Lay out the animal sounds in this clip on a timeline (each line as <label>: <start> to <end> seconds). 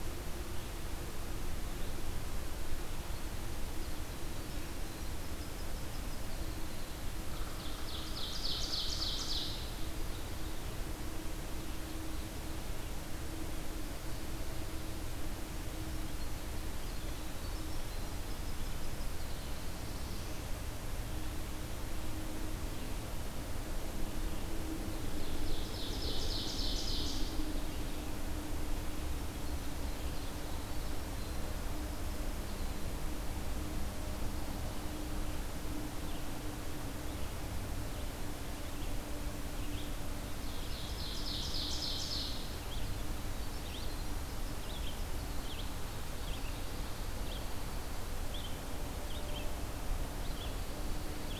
Winter Wren (Troglodytes hiemalis): 2.9 to 7.3 seconds
Ovenbird (Seiurus aurocapilla): 7.4 to 9.8 seconds
Winter Wren (Troglodytes hiemalis): 16.0 to 20.4 seconds
Ovenbird (Seiurus aurocapilla): 24.8 to 27.6 seconds
Red-eyed Vireo (Vireo olivaceus): 36.0 to 51.4 seconds
Ovenbird (Seiurus aurocapilla): 40.2 to 42.5 seconds